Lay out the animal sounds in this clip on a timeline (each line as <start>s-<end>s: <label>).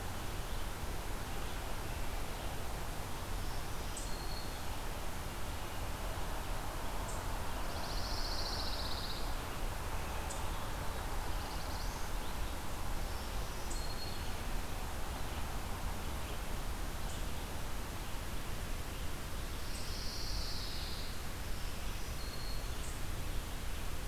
0.0s-24.1s: Eastern Chipmunk (Tamias striatus)
3.3s-5.1s: Black-throated Green Warbler (Setophaga virens)
7.6s-9.3s: Pine Warbler (Setophaga pinus)
10.8s-12.3s: Black-throated Blue Warbler (Setophaga caerulescens)
12.9s-15.0s: Black-throated Green Warbler (Setophaga virens)
19.6s-21.2s: Pine Warbler (Setophaga pinus)
21.3s-22.8s: Black-throated Green Warbler (Setophaga virens)